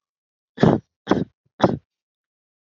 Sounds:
Cough